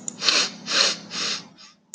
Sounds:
Sniff